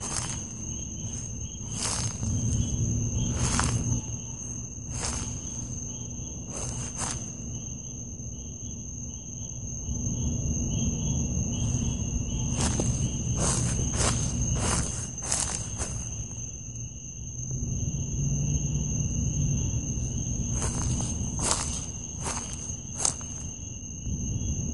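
Footsteps on grass. 0:00.0 - 0:07.5
Night insects sound repeatedly in the distance. 0:00.0 - 0:24.7
Footsteps on grass. 0:12.6 - 0:16.7
Footsteps walking on grass. 0:20.2 - 0:23.8

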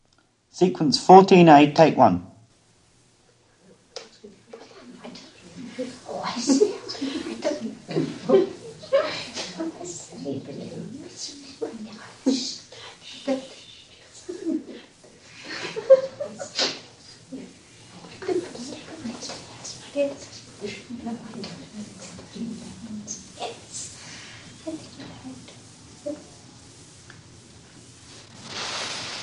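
An announcer is speaking. 0:00.3 - 0:02.5
A small group whispers and giggles. 0:05.5 - 0:29.2
Static noise. 0:28.4 - 0:29.2

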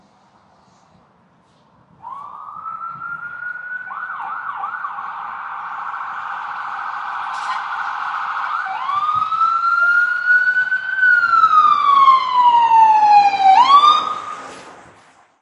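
A high-pitched siren wails and gradually increases in volume. 0:02.0 - 0:15.4

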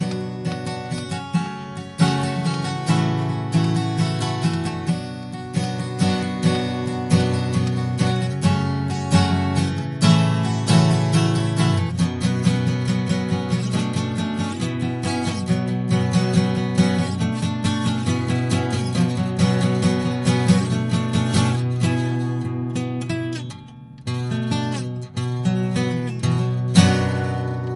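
A guitar plays melodically. 0:00.0 - 0:27.8

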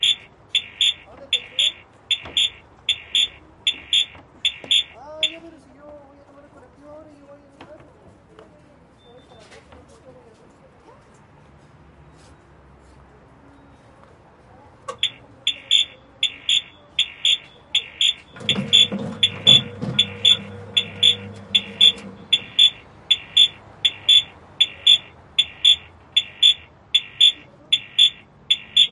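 An electronic beep or chirp sounds regularly in a 3/4 time signature. 0:00.0 - 0:05.5
An electronic beep or chirp sounds regularly in a 3/4 time signature. 0:14.9 - 0:28.9

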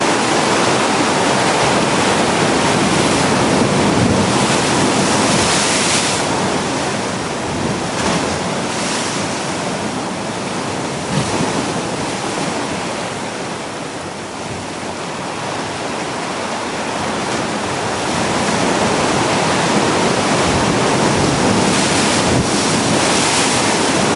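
Waves crash repeatedly at varying volumes. 0:00.0 - 0:24.2

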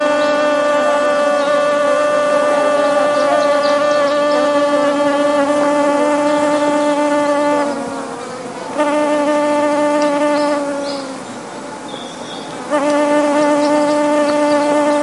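Bees are buzzing. 0:00.0 - 0:07.8
Bees are buzzing. 0:08.7 - 0:10.9
Bees are buzzing. 0:12.6 - 0:15.0

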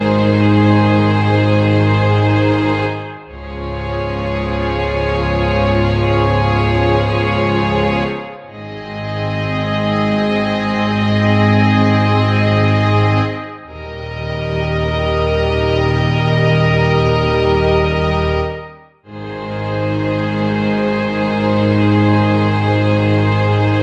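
A solo violin plays a slow, dramatic melody with a sad and tense cinematic feel. 0:00.0 - 0:23.8

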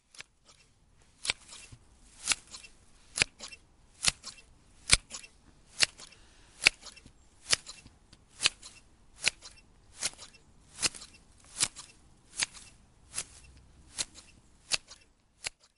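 Periodic cutting sounds of garden scissors. 0:00.0 - 0:15.8

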